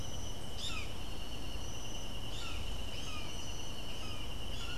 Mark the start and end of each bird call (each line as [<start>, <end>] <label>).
[0.47, 4.78] Brown Jay (Psilorhinus morio)